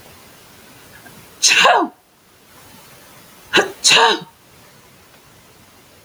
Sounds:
Sneeze